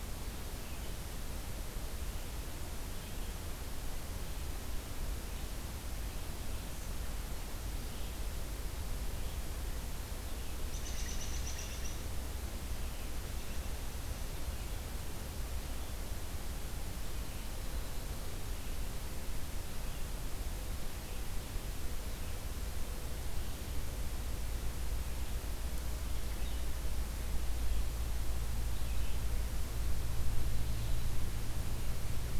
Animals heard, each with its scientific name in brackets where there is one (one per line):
Red-eyed Vireo (Vireo olivaceus)
American Robin (Turdus migratorius)